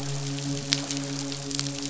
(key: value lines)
label: biophony, midshipman
recorder: SoundTrap 500